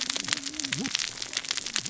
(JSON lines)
{"label": "biophony, cascading saw", "recorder": "SoundTrap 600 or HydroMoth"}